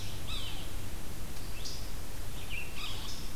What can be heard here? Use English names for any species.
Red-eyed Vireo, Yellow-bellied Sapsucker